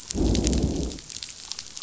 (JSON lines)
{"label": "biophony, growl", "recorder": "SoundTrap 500"}